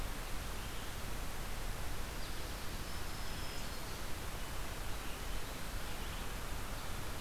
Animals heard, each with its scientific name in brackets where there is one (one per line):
Black-throated Green Warbler (Setophaga virens)
Red-eyed Vireo (Vireo olivaceus)